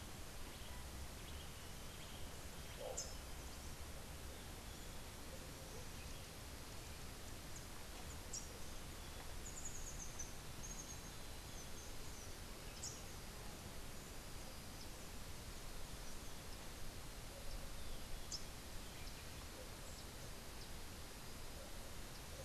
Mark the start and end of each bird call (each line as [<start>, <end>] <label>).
[0.00, 2.14] Cabanis's Wren (Cantorchilus modestus)
[2.74, 3.24] Rufous-capped Warbler (Basileuterus rufifrons)
[8.14, 8.64] Rufous-capped Warbler (Basileuterus rufifrons)
[9.04, 13.24] Rufous-tailed Hummingbird (Amazilia tzacatl)
[18.24, 18.44] Rufous-capped Warbler (Basileuterus rufifrons)